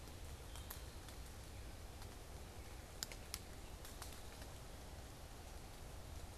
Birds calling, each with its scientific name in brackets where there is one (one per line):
unidentified bird